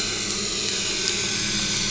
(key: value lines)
label: anthrophony, boat engine
recorder: SoundTrap 500